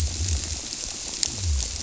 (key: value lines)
label: biophony
recorder: SoundTrap 300